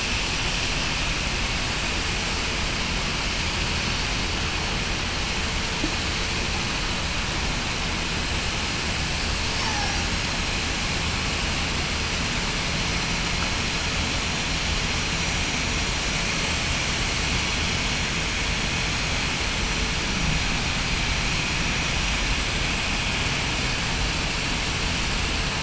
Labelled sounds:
9.6	10.0	killer whale, southern resident, 0.75 to 0.96 kHz

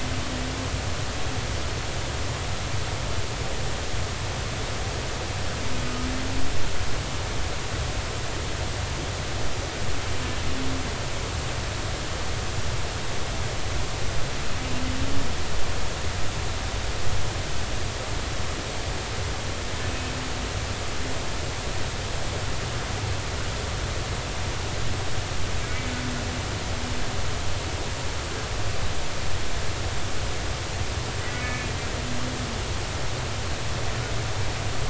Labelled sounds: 19.9	20.1	humpback whale, 2.5 to 2.8 kHz
31.4	31.7	humpback whale, 1.7 to 2.4 kHz

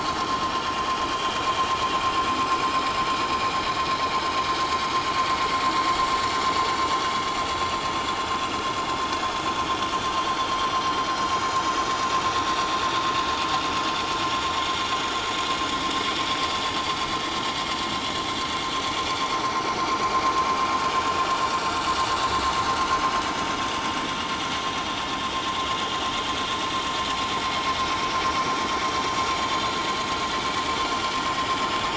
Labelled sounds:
1.1	1.4	vessel noise, 3.1 to 3.3 kHz
2.5	2.9	vessel noise, 5.0 to 5.3 kHz
6.8	7.1	vessel noise, 5.7 to 6.0 kHz
9.7	9.9	vessel noise, 3.0 to 3.3 kHz
19.9	20.2	vessel noise, 6.6 to 6.8 kHz
30.7	31.0	vessel noise, 7.0 to 7.4 kHz

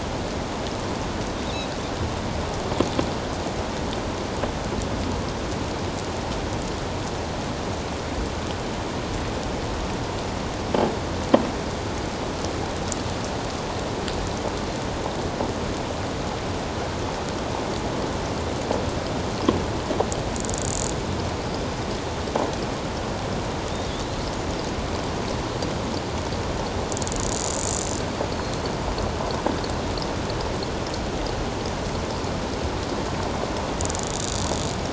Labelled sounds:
28.3	28.7	killer whale, offshore, 4.1 to 4.8 kHz

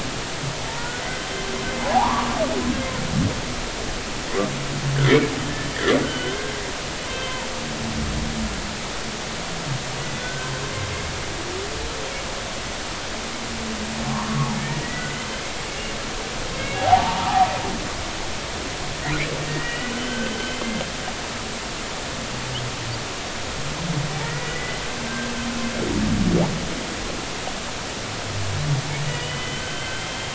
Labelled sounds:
0.7	1.0	humpback whale, 0.86 to 1.5 kHz
1.8	2.3	humpback whale, 0.80 to 1.2 kHz
5.0	7.4	humpback whale, 1.3 to 3.2 kHz
10.2	10.5	humpback whale, 1.4 to 1.6 kHz
14.1	15.1	humpback whale, 0.90 to 2.0 kHz
16.6	17.3	humpback whale, 0.80 to 2.8 kHz
19.5	20.7	humpback whale, 1.5 to 3.2 kHz
24.2	25.3	humpback whale, 1.5 to 2.1 kHz
29.2	30.2	humpback whale, 1.5 to 3.2 kHz

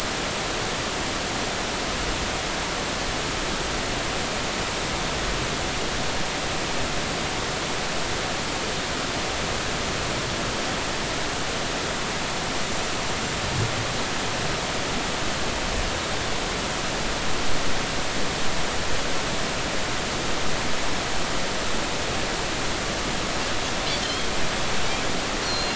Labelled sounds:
24.0	24.3	Pacific white-sided dolphin, 3.0 to 3.4 kHz
25.4	25.7	Pacific white-sided dolphin, 4.0 to 4.4 kHz

